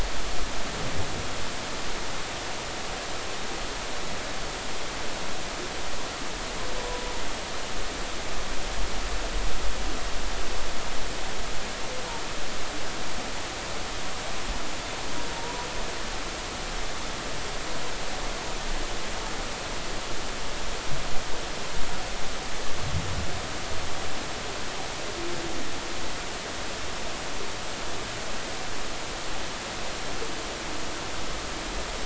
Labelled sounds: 15.3	15.7	humpback whale, 0.86 to 1.1 kHz

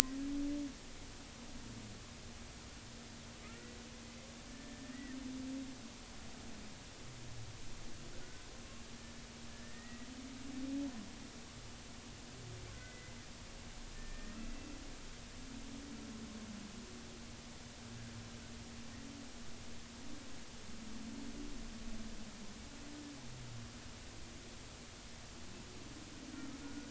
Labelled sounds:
3.4	3.8	humpback whale, 1.2 to 2.0 kHz
4.5	5.2	humpback whale, 1.7 to 2.0 kHz
8.2	8.5	humpback whale, 1.4 to 1.6 kHz
9.5	10.1	humpback whale, 1.7 to 2.0 kHz
12.7	13.2	humpback whale, 1.4 to 2.1 kHz
14.0	14.4	humpback whale, 1.7 to 1.9 kHz
26.3	26.9	humpback whale, 1.2 to 1.5 kHz

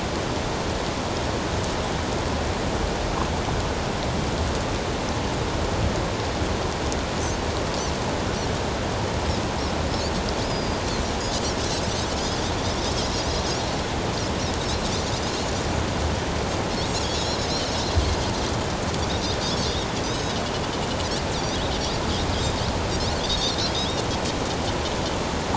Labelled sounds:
10.4	11.5	Pacific white-sided dolphin, 4.7 to 5.3 kHz
16.9	17.9	Pacific white-sided dolphin, 3.6 to 7.1 kHz
20.0	20.4	Pacific white-sided dolphin, 3.6 to 6.6 kHz
23.3	23.6	Pacific white-sided dolphin, 3.2 to 4.7 kHz

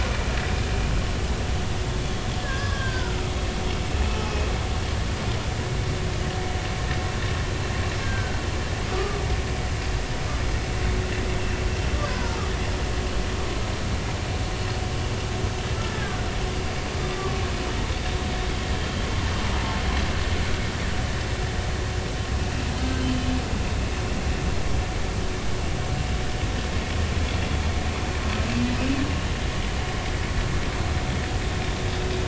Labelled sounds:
2.4	3.3	humpback whale, 0.99 to 1.8 kHz
8.0	8.4	humpback whale, 1.4 to 1.7 kHz
8.9	9.2	humpback whale, 1.1 to 1.3 kHz
12.1	12.4	humpback whale, 0.86 to 1.1 kHz
15.9	16.2	humpback whale, 1.4 to 1.8 kHz

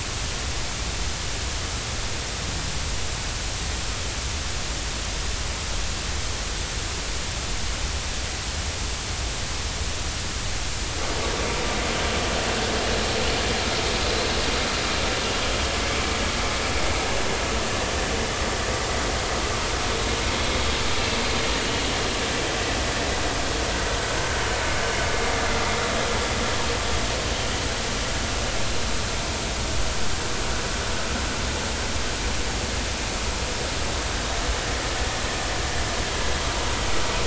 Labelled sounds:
21.6	21.8	vessel noise, 2.8 to 3.1 kHz

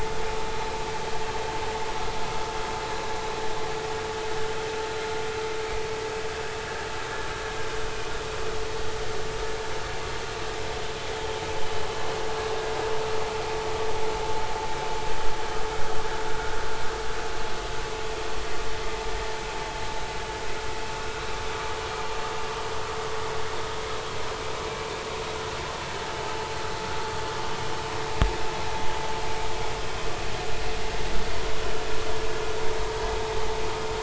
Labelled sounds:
0.4	0.7	vessel noise, 3.9 to 4.1 kHz

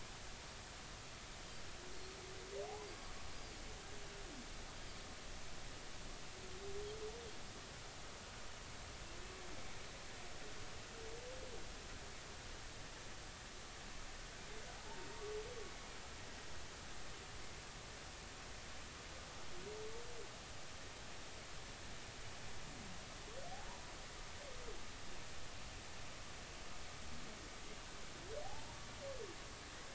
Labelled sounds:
28.4	28.8	humpback whale, 0.80 to 0.99 kHz

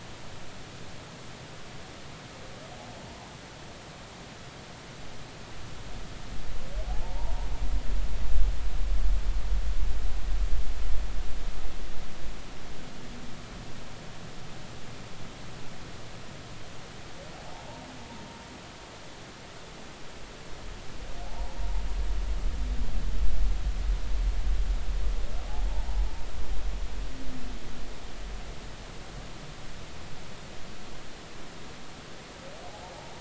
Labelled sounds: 6.8	7.5	humpback whale, 0.80 to 1.0 kHz
17.3	17.7	humpback whale, 0.80 to 0.96 kHz
21.2	21.6	humpback whale, 0.80 to 0.99 kHz
32.7	32.9	humpback whale, 0.80 to 0.96 kHz

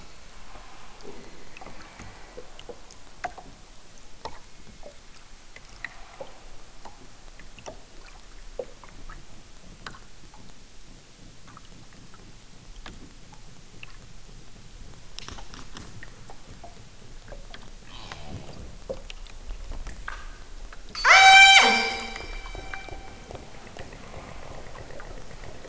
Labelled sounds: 20.9	22.2	killer whale, southern Alaska resident, 0.28 to 8.0 kHz

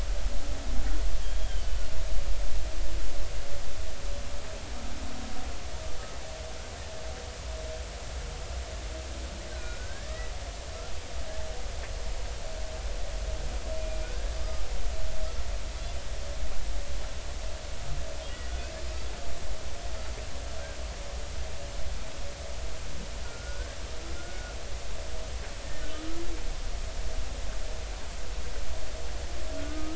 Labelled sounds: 1.2	1.7	humpback whale, 3.0 to 3.4 kHz
9.5	10.3	humpback whale, 1.4 to 4.1 kHz
14.0	14.3	humpback whale, 1.4 to 1.7 kHz
23.2	24.5	humpback whale, 1.3 to 1.6 kHz
25.6	25.9	humpback whale, 1.8 to 1.9 kHz
29.6	29.9	humpback whale, 1.2 to 1.6 kHz

